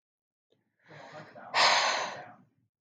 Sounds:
Sigh